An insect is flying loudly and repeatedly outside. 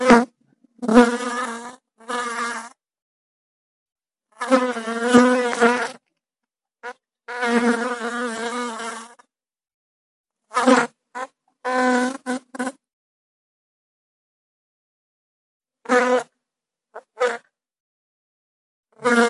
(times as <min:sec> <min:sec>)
0:00.0 0:02.8, 0:04.3 0:06.1, 0:06.8 0:09.4, 0:10.4 0:12.9, 0:15.8 0:17.5, 0:19.0 0:19.3